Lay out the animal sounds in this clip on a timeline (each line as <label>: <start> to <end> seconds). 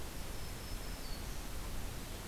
Black-throated Green Warbler (Setophaga virens): 0.0 to 1.5 seconds